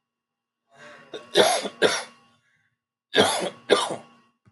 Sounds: Cough